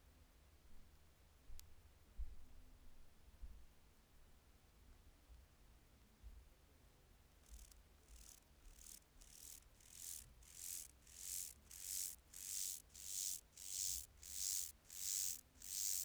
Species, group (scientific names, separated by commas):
Myrmeleotettix maculatus, Orthoptera